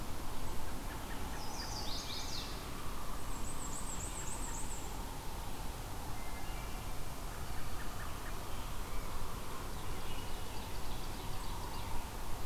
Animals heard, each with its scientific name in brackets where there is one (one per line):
Chestnut-sided Warbler (Setophaga pensylvanica)
Black-and-white Warbler (Mniotilta varia)
Ovenbird (Seiurus aurocapilla)
Wood Thrush (Hylocichla mustelina)
American Robin (Turdus migratorius)